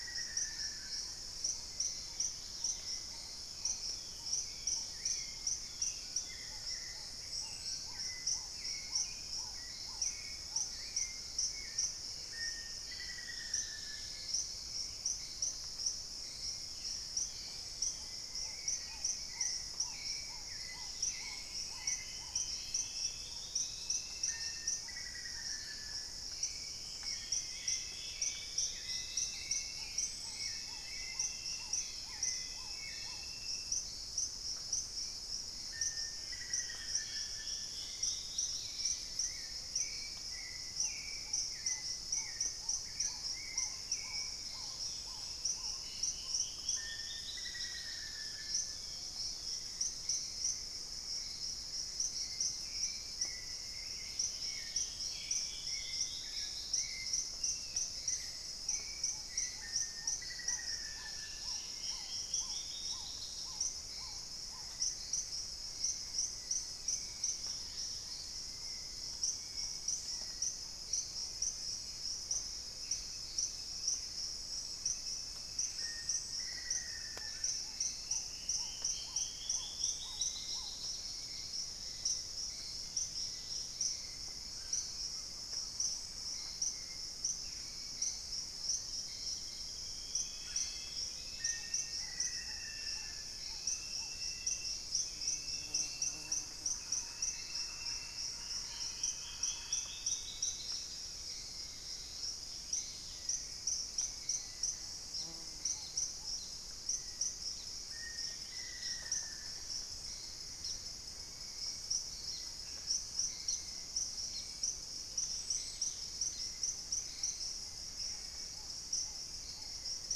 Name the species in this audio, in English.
Black-faced Antthrush, Black-tailed Trogon, Hauxwell's Thrush, Dusky-capped Greenlet, Long-winged Antwren, Long-billed Woodcreeper, Dusky-throated Antshrike, unidentified bird, Purple-throated Fruitcrow, Thrush-like Wren, Ringed Woodpecker